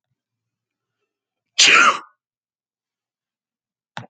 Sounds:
Sneeze